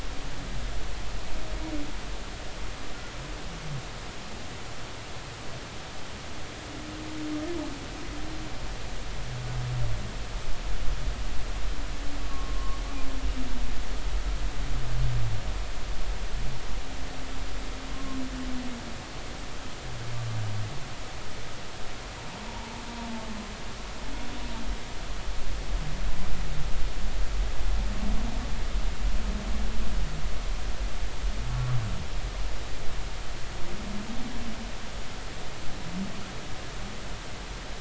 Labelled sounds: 12.3	12.8	humpback whale, 1.0 to 1.2 kHz
17.9	18.2	humpback whale, 1.0 to 1.1 kHz

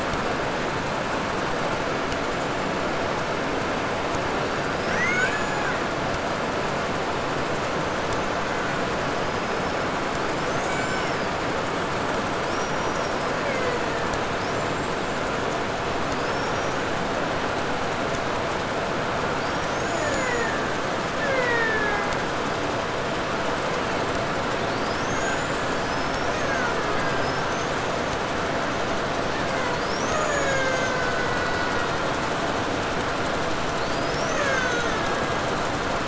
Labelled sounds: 4.4	5.9	killer whale, Bigg's (transient), 1.0 to 8.0 kHz
7.7	9.8	killer whale, 1.2 to 6.7 kHz
10.1	11.3	killer whale, Bigg's (transient), 0.34 to 8.0 kHz
12.3	14.3	killer whale, Bigg's (transient), 0.30 to 8.0 kHz
14.4	15.5	killer whale, 4.2 to 7.9 kHz
16.0	17.3	killer whale, 3.2 to 7.9 kHz
19.3	22.4	killer whale, Bigg's (transient), 0.12 to 8.0 kHz
24.4	28.1	killer whale, Bigg's (transient), 0.93 to 8.0 kHz
29.2	32.4	killer whale, Bigg's (transient), 0.38 to 8.0 kHz
33.6	35.7	killer whale, Bigg's (transient), 0.34 to 8.0 kHz

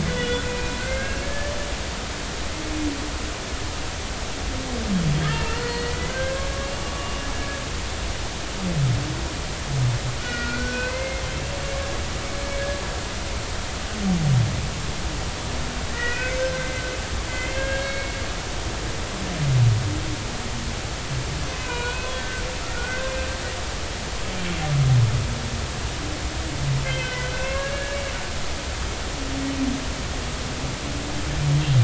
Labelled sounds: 0.1	1.5	humpback whale, 1.4 to 3.5 kHz
5.2	6.5	humpback whale, 1.5 to 4.4 kHz
6.8	7.3	humpback whale, 1.1 to 2.9 kHz
10.2	11.2	humpback whale, 1.3 to 2.6 kHz
15.9	16.8	humpback whale, 1.4 to 3.1 kHz
17.3	18.1	humpback whale, 1.6 to 4.4 kHz
21.5	22.4	humpback whale, 0.93 to 2.6 kHz
22.7	23.1	humpback whale, 1.4 to 1.6 kHz
26.8	28.1	humpback whale, 1.5 to 3.2 kHz

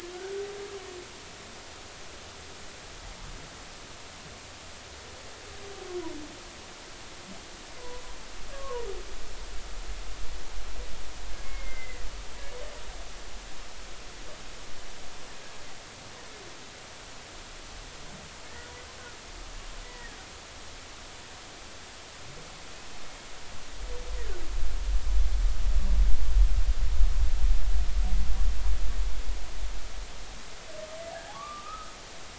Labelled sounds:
7.8	8.9	humpback whale, 0.90 to 1.2 kHz
11.4	12.0	humpback whale, 1.8 to 2.2 kHz
19.8	20.1	humpback whale, 1.8 to 2.0 kHz
31.3	31.9	humpback whale, 1.1 to 1.3 kHz

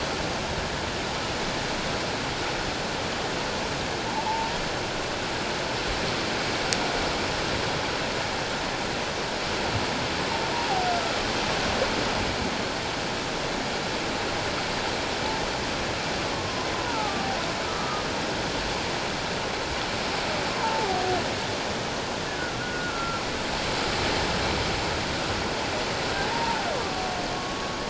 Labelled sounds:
4.0	4.5	humpback whale, 0.78 to 1.0 kHz
16.3	17.2	humpback whale, 0.78 to 1.5 kHz
17.6	18.0	humpback whale, 1.2 to 1.3 kHz
20.5	20.9	humpback whale, 0.81 to 1.1 kHz
22.4	23.2	humpback whale, 1.3 to 1.6 kHz
26.3	26.7	humpback whale, 0.78 to 0.97 kHz
27.3	27.7	humpback whale, 1.1 to 1.2 kHz

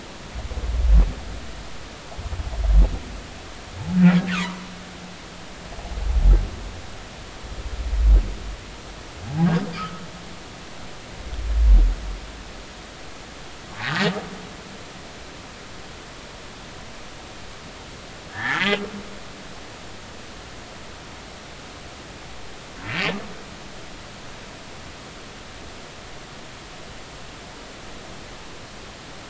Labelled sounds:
4.3	4.6	humpback whale, 0.90 to 1.6 kHz
9.7	10.0	humpback whale, 1.2 to 1.5 kHz
18.3	18.8	humpback whale, 0.80 to 3.3 kHz
22.8	23.1	humpback whale, 2.2 to 2.3 kHz

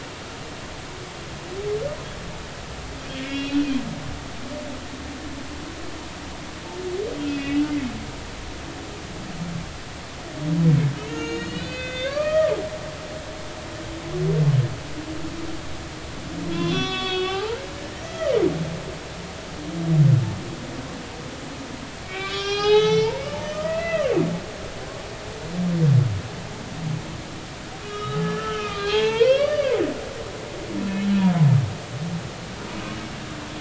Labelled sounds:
3.2	3.8	humpback whale, 2.1 to 4.1 kHz
7.2	7.7	humpback whale, 2.4 to 3.0 kHz
11.0	12.5	humpback whale, 1.1 to 6.7 kHz
16.5	17.6	humpback whale, 0.80 to 5.3 kHz
18.0	18.3	humpback whale, 1.2 to 6.1 kHz
22.0	23.2	humpback whale, 0.80 to 6.3 kHz
23.6	24.2	humpback whale, 1.1 to 2.8 kHz
27.8	29.8	humpback whale, 0.80 to 4.0 kHz
31.0	31.3	humpback whale, 2.9 to 3.4 kHz

